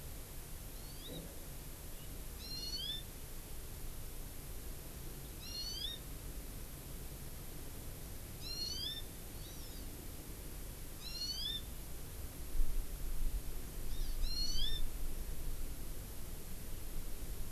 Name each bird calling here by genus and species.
Chlorodrepanis virens